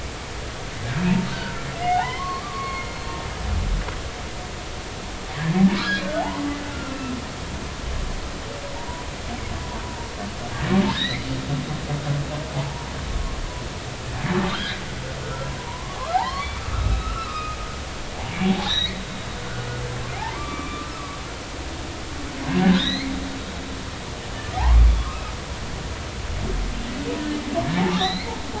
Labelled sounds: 1.3	3.0	humpback whale, 0.80 to 2.2 kHz
6.2	7.1	humpback whale, 0.80 to 2.8 kHz
8.8	9.0	humpback whale, 0.86 to 1.0 kHz
10.9	11.3	humpback whale, 1.5 to 2.4 kHz
12.5	12.9	humpback whale, 0.80 to 0.99 kHz
14.4	14.8	humpback whale, 1.1 to 1.8 kHz
15.2	17.6	humpback whale, 0.80 to 4.7 kHz
18.4	19.0	humpback whale, 0.80 to 4.2 kHz
20.3	21.9	humpback whale, 1.1 to 2.4 kHz
22.5	23.1	humpback whale, 1.4 to 4.3 kHz
24.5	24.8	humpback whale, 0.80 to 1.2 kHz
27.8	28.3	humpback whale, 0.80 to 4.4 kHz

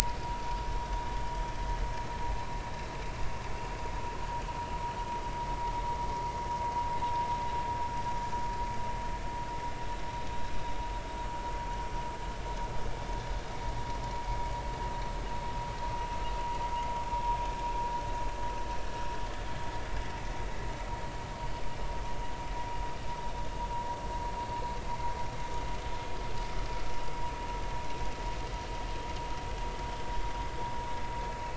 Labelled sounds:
0.2	0.6	vessel noise, 0.90 to 1.2 kHz

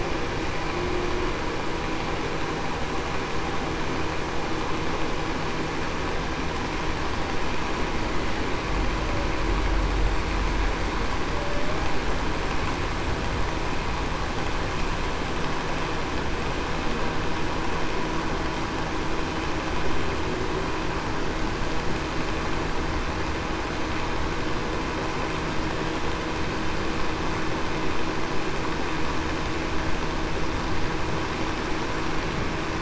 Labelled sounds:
11.3	11.8	humpback whale, 0.56 to 0.66 kHz

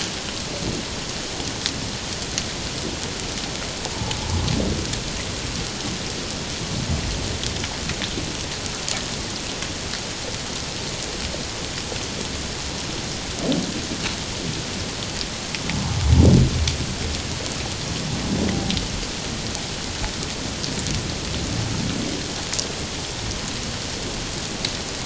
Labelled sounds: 3.9	4.2	humpback whale, 0.78 to 0.97 kHz

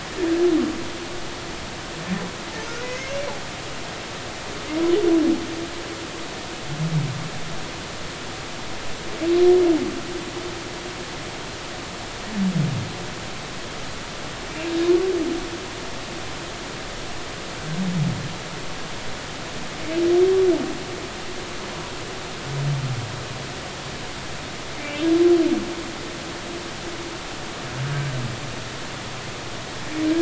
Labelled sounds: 2.8	3.1	humpback whale, 2.0 to 2.2 kHz

